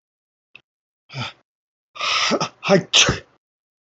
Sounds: Sneeze